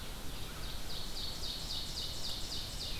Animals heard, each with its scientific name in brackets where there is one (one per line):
American Crow (Corvus brachyrhynchos)
Ovenbird (Seiurus aurocapilla)